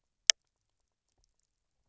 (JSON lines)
{"label": "biophony, knock croak", "recorder": "SoundTrap 300"}